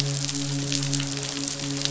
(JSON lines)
{"label": "biophony, midshipman", "recorder": "SoundTrap 500"}